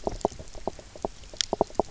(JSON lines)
{"label": "biophony, knock croak", "recorder": "SoundTrap 300"}